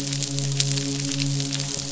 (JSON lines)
{"label": "biophony, midshipman", "recorder": "SoundTrap 500"}